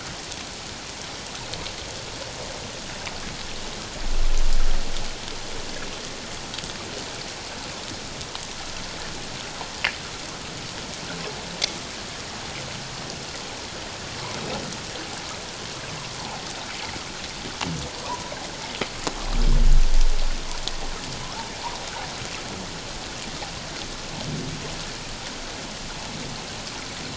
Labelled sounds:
18.0	18.3	humpback whale, 0.91 to 1.2 kHz

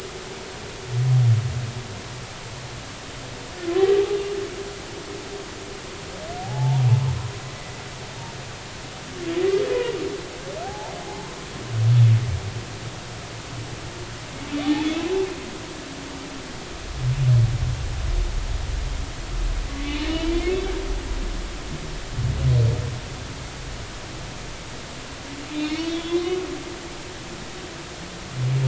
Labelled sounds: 6.4	6.9	humpback whale, 0.80 to 0.99 kHz
7.5	7.8	humpback whale, 2.0 to 2.1 kHz
10.6	10.9	humpback whale, 0.80 to 0.99 kHz
20.1	20.6	humpback whale, 2.0 to 3.2 kHz
25.5	26.3	humpback whale, 2.3 to 3.8 kHz

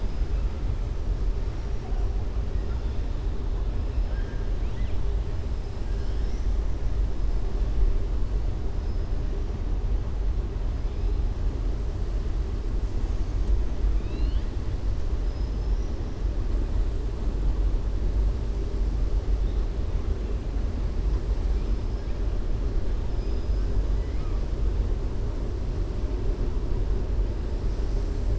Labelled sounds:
4.5	5.0	killer whale, southern resident, 1.8 to 4.1 kHz
13.9	14.5	killer whale, southern resident, 2.4 to 4.9 kHz
15.2	16.0	killer whale, southern resident, 5.0 to 6.2 kHz
23.1	24.4	killer whale, southern resident, 1.1 to 5.6 kHz

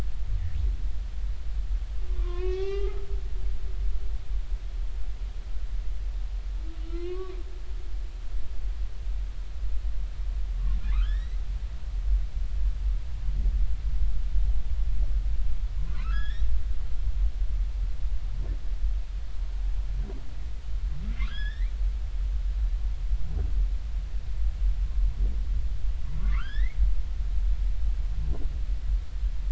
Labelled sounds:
2.1	3.1	humpback whale, 0.80 to 3.6 kHz
6.8	7.3	humpback whale, 0.99 to 3.2 kHz
10.9	11.4	humpback whale, 0.96 to 4.2 kHz
15.8	16.5	humpback whale, 0.96 to 5.2 kHz
21.2	21.7	humpback whale, 0.99 to 5.2 kHz
26.2	26.8	humpback whale, 0.99 to 4.2 kHz

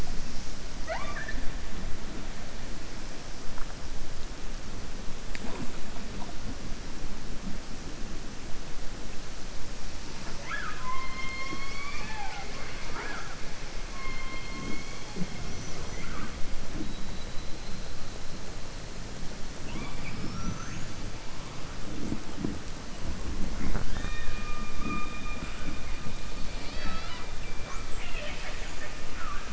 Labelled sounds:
27.9	29.5	killer whale, southern resident, 0.61 to 5.0 kHz

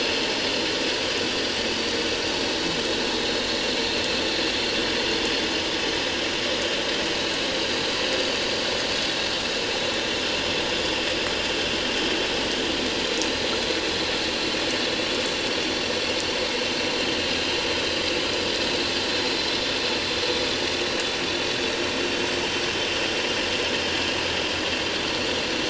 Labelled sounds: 1.3	1.5	vessel noise, 4.6 to 4.8 kHz

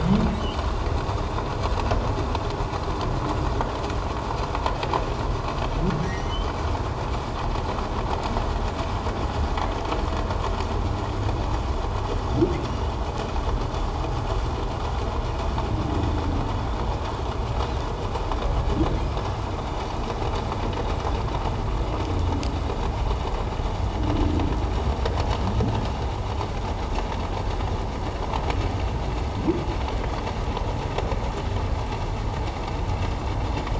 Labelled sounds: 6.0	6.5	humpback whale, 1.8 to 6.1 kHz
12.6	12.9	humpback whale, 2.6 to 3.1 kHz

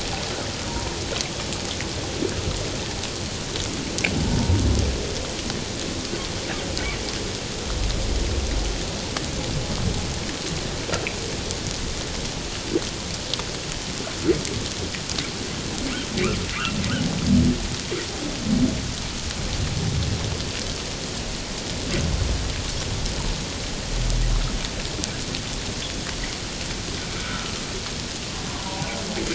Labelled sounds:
0.7	1.0	humpback whale, 0.88 to 1.1 kHz
4.1	4.6	humpback whale, 0.78 to 0.97 kHz
27.2	27.5	humpback whale, 1.2 to 1.5 kHz
28.5	28.9	humpback whale, 0.78 to 1.2 kHz

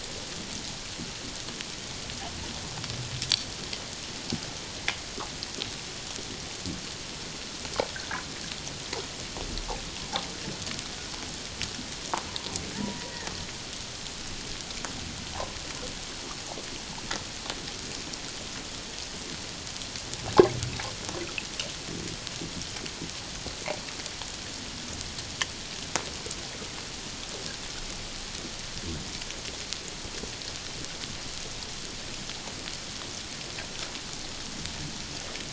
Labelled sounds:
12.7	13.0	killer whale, Bigg's (transient), 0.84 to 1.0 kHz

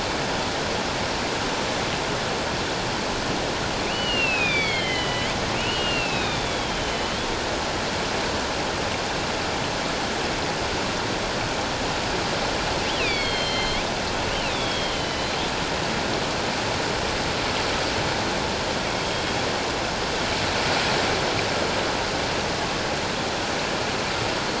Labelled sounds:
3.8	7.2	killer whale, northern resident, A clan, AA subclan, A04 pod, 1.9 to 5.0 kHz
12.9	13.8	killer whale, northern resident, A clan, AA subclan, A04 pod, 2.0 to 4.8 kHz
14.3	15.4	killer whale, northern resident, A clan, AA subclan, A04 pod, 2.4 to 4.2 kHz

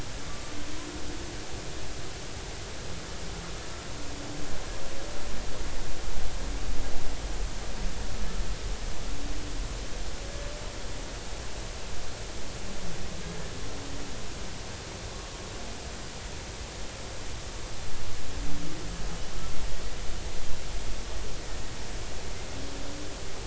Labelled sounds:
0.3	0.5	humpback whale, 1.1 to 1.2 kHz

